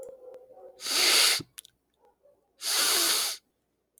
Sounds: Sniff